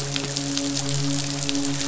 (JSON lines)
{"label": "biophony, midshipman", "recorder": "SoundTrap 500"}